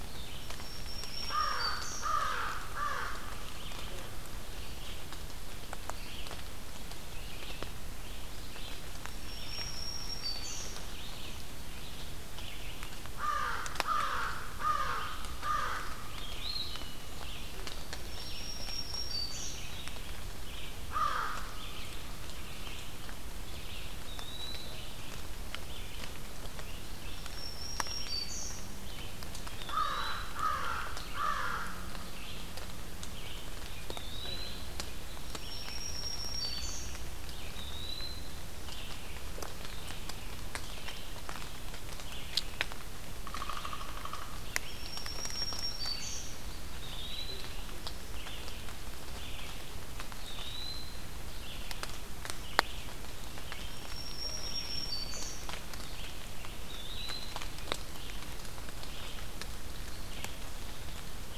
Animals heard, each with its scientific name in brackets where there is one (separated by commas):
Red-eyed Vireo (Vireo olivaceus), Downy Woodpecker (Dryobates pubescens), Eastern Wood-Pewee (Contopus virens), American Crow (Corvus brachyrhynchos), Black-throated Green Warbler (Setophaga virens)